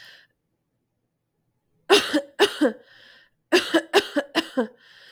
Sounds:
Cough